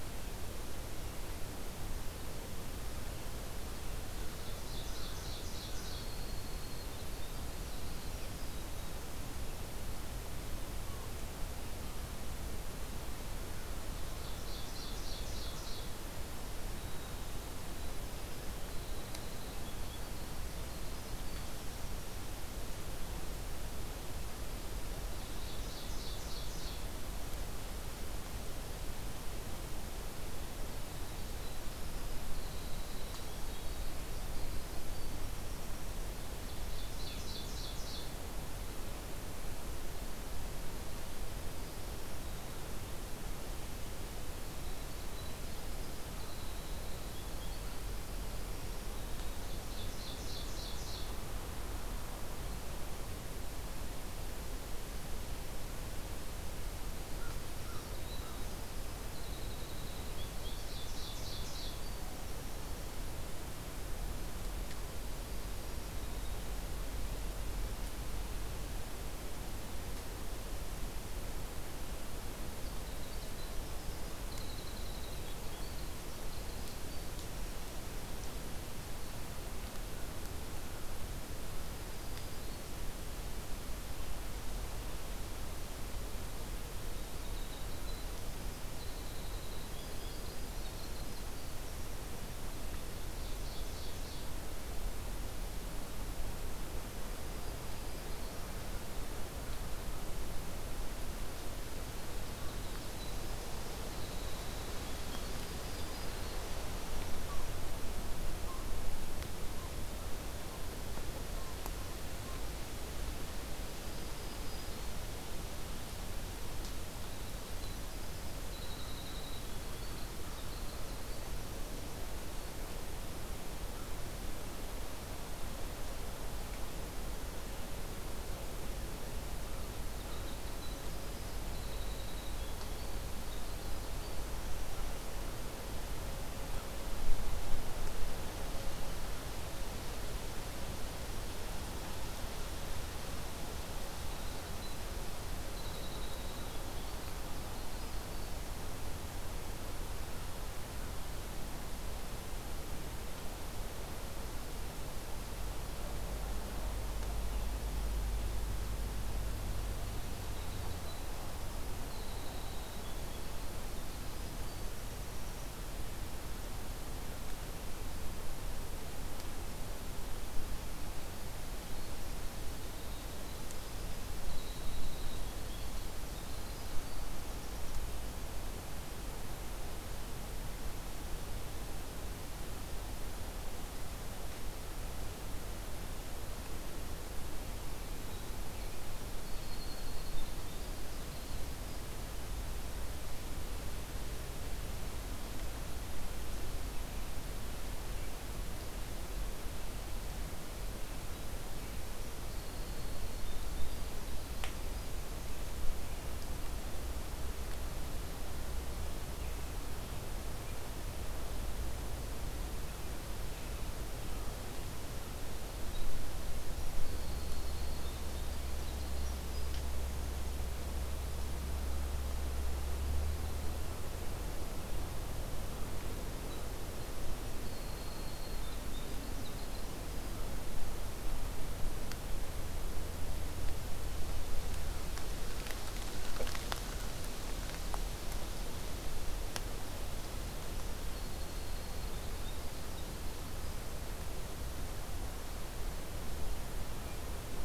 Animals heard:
Winter Wren (Troglodytes hiemalis), Black-throated Green Warbler (Setophaga virens), Ovenbird (Seiurus aurocapilla), American Crow (Corvus brachyrhynchos)

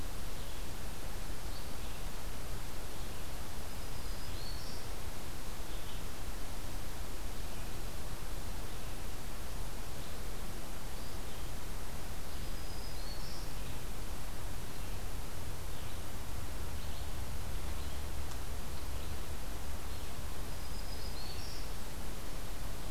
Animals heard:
Black-throated Green Warbler (Setophaga virens), Red-eyed Vireo (Vireo olivaceus)

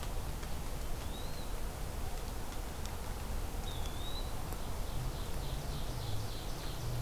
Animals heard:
Eastern Wood-Pewee (Contopus virens), Ovenbird (Seiurus aurocapilla)

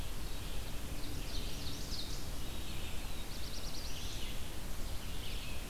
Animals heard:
Black-throated Blue Warbler (Setophaga caerulescens), Ovenbird (Seiurus aurocapilla), Red-eyed Vireo (Vireo olivaceus)

